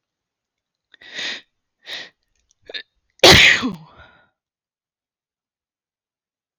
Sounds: Sneeze